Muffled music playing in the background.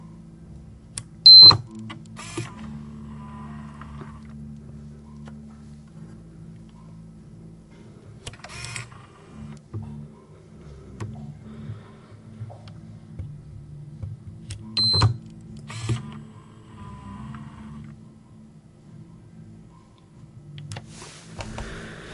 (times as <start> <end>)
4.3 8.1, 9.4 14.7